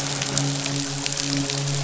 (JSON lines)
{"label": "biophony, midshipman", "recorder": "SoundTrap 500"}